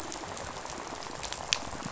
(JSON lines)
{"label": "biophony, rattle", "recorder": "SoundTrap 500"}